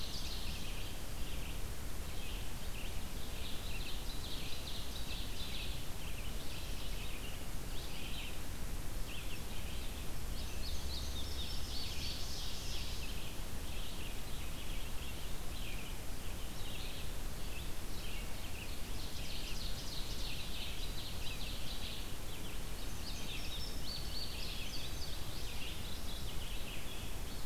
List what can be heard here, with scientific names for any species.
Seiurus aurocapilla, Passerina cyanea, Vireo olivaceus, Geothlypis philadelphia